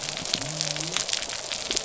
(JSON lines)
{"label": "biophony", "recorder": "SoundTrap 300"}